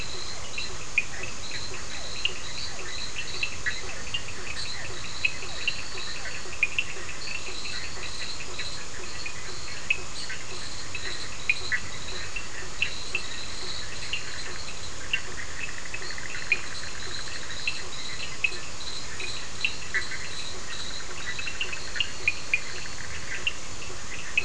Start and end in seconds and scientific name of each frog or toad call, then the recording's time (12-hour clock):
0.0	21.6	Boana leptolineata
0.0	24.4	Boana bischoffi
0.0	24.4	Physalaemus cuvieri
0.0	24.4	Sphaenorhynchus surdus
21.6	23.3	Elachistocleis bicolor
10:30pm